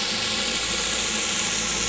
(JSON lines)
{"label": "anthrophony, boat engine", "recorder": "SoundTrap 500"}